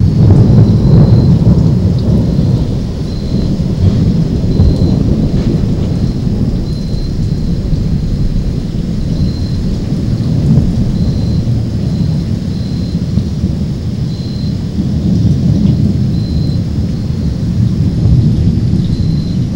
Are there people having a conversation?
no